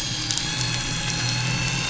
{"label": "anthrophony, boat engine", "recorder": "SoundTrap 500"}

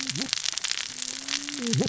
{"label": "biophony, cascading saw", "recorder": "SoundTrap 600 or HydroMoth"}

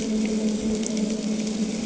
{"label": "anthrophony, boat engine", "recorder": "HydroMoth"}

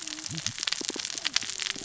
{"label": "biophony, cascading saw", "recorder": "SoundTrap 600 or HydroMoth"}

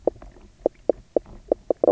{"label": "biophony, knock croak", "recorder": "SoundTrap 300"}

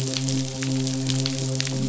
{"label": "biophony, midshipman", "recorder": "SoundTrap 500"}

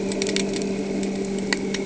{"label": "anthrophony, boat engine", "recorder": "HydroMoth"}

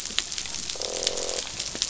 {"label": "biophony, croak", "recorder": "SoundTrap 500"}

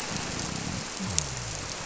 {"label": "biophony", "recorder": "SoundTrap 300"}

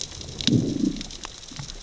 {"label": "biophony, growl", "recorder": "SoundTrap 600 or HydroMoth"}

